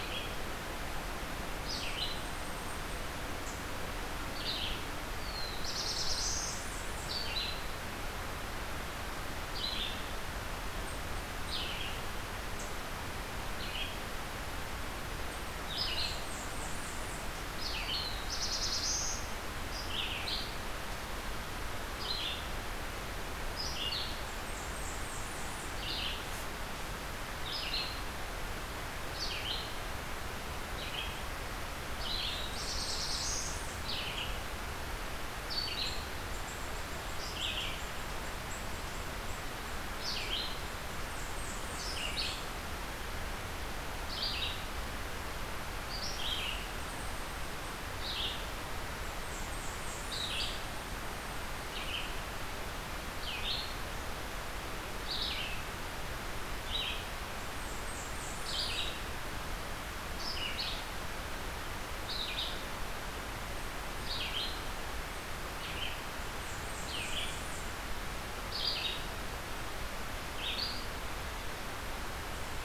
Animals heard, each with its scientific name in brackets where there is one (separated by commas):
Blackburnian Warbler (Setophaga fusca), Red-eyed Vireo (Vireo olivaceus), Black-throated Blue Warbler (Setophaga caerulescens)